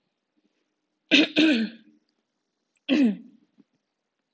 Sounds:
Throat clearing